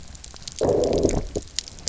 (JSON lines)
{"label": "biophony, low growl", "recorder": "SoundTrap 300"}